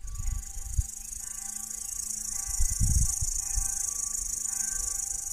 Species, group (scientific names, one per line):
Tettigonia cantans
Orthoptera